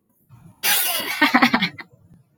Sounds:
Laughter